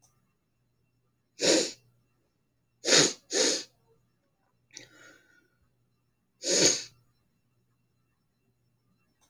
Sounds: Sniff